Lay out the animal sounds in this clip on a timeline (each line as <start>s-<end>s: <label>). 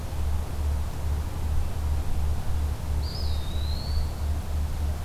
3.0s-4.4s: Eastern Wood-Pewee (Contopus virens)